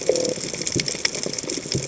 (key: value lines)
label: biophony
recorder: HydroMoth